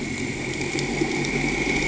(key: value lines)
label: anthrophony, boat engine
recorder: HydroMoth